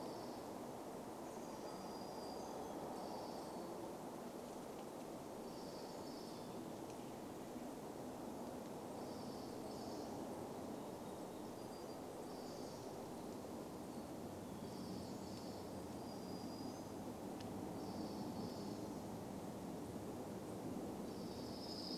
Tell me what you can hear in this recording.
Chestnut-backed Chickadee call, warbler song, unidentified sound